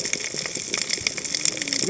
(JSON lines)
{"label": "biophony, cascading saw", "recorder": "HydroMoth"}